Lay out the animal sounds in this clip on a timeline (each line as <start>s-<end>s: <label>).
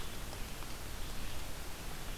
0.0s-2.2s: Red-eyed Vireo (Vireo olivaceus)